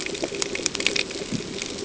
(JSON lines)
{"label": "ambient", "recorder": "HydroMoth"}